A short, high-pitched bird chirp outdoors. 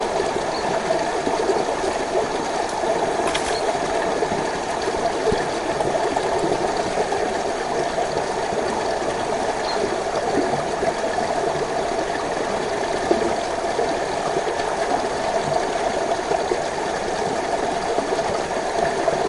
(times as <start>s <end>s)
1.0s 1.4s, 3.5s 3.8s, 9.6s 10.0s